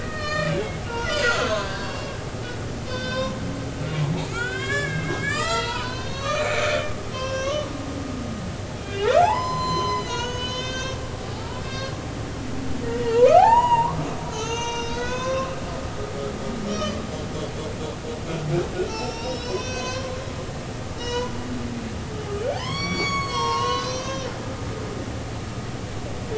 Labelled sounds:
0.0	2.2	humpback whale, 0.96 to 6.6 kHz
2.9	3.4	humpback whale, 0.93 to 5.9 kHz
4.2	7.7	humpback whale, 0.86 to 7.5 kHz
8.8	11.0	humpback whale, 0.80 to 8.0 kHz
11.3	14.0	humpback whale, 0.80 to 6.9 kHz
14.3	15.9	humpback whale, 0.96 to 6.9 kHz
16.7	17.0	humpback whale, 2.4 to 5.8 kHz
18.8	20.1	humpback whale, 0.86 to 6.7 kHz
21.0	21.3	humpback whale, 0.86 to 7.0 kHz
22.5	24.3	humpback whale, 0.80 to 7.8 kHz

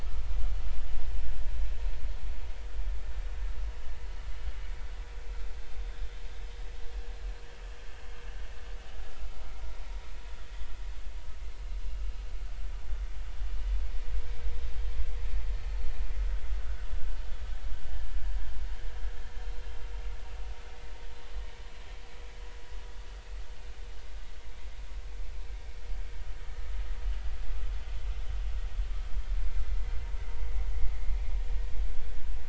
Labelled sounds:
5.7	6.0	vessel noise, 3.5 to 3.7 kHz
16.6	16.9	vessel noise, 1.2 to 1.6 kHz

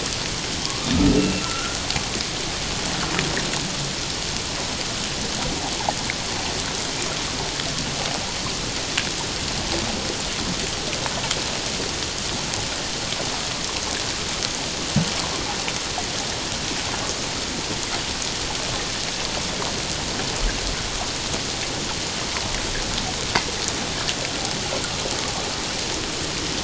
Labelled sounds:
0.7	1.8	humpback whale, 1.0 to 2.8 kHz

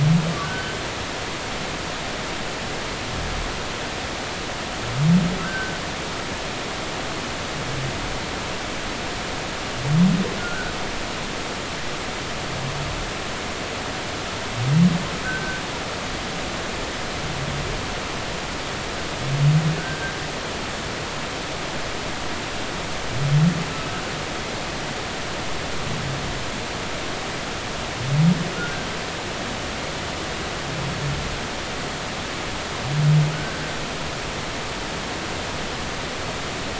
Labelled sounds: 0.4	0.8	humpback whale, 1.4 to 1.6 kHz
5.4	5.8	humpback whale, 1.3 to 1.6 kHz
10.4	10.7	humpback whale, 1.3 to 1.6 kHz
15.2	15.6	humpback whale, 1.4 to 1.6 kHz
19.8	20.2	humpback whale, 1.4 to 1.6 kHz
33.3	33.6	humpback whale, 1.2 to 1.6 kHz

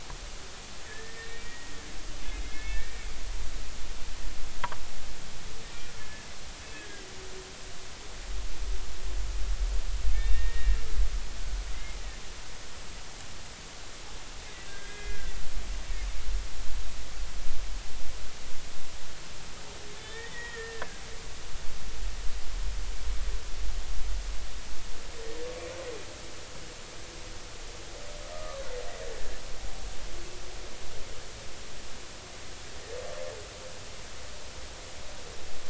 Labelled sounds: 0.8	1.8	humpback whale, 1.6 to 2.4 kHz
2.4	3.1	humpback whale, 1.7 to 2.7 kHz
6.0	6.3	humpback whale, 1.7 to 1.8 kHz
6.7	7.1	humpback whale, 1.6 to 2.1 kHz
10.1	10.8	humpback whale, 1.7 to 2.4 kHz
11.7	12.0	humpback whale, 2.0 to 2.2 kHz
14.7	15.3	humpback whale, 1.5 to 2.5 kHz
20.0	21.0	humpback whale, 1.5 to 3.7 kHz
28.3	28.6	humpback whale, 1.1 to 1.3 kHz

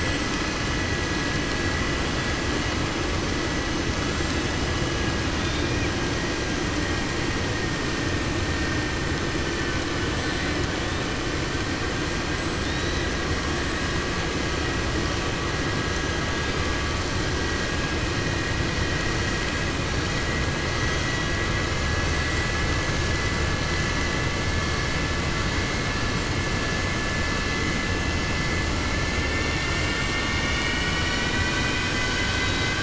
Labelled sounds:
5.3	5.9	killer whale, 1.6 to 5.7 kHz

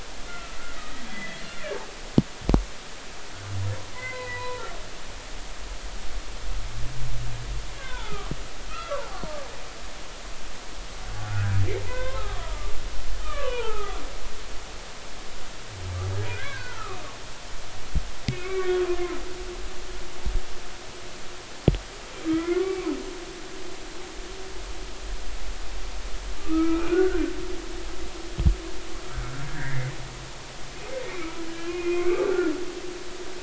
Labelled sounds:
0.3	1.4	humpback whale, 1.3 to 3.4 kHz
2.5	2.8	humpback whale, 1.6 to 2.1 kHz
3.9	4.7	humpback whale, 0.90 to 2.1 kHz
7.7	8.3	humpback whale, 0.83 to 3.7 kHz
8.7	9.2	humpback whale, 0.80 to 1.4 kHz
11.3	14.0	humpback whale, 0.80 to 3.5 kHz
16.3	17.0	humpback whale, 1.1 to 1.8 kHz
18.2	18.8	humpback whale, 1.1 to 2.4 kHz
22.2	22.9	humpback whale, 0.86 to 2.3 kHz
26.4	27.2	humpback whale, 1.1 to 2.6 kHz
29.1	29.4	humpback whale, 1.3 to 1.6 kHz
30.5	32.5	humpback whale, 1.1 to 2.6 kHz

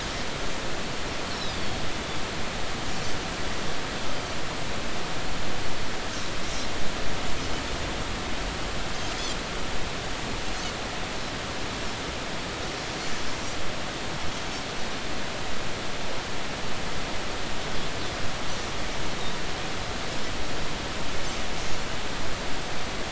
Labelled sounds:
1.3	1.8	Pacific white-sided dolphin, 3.5 to 5.6 kHz

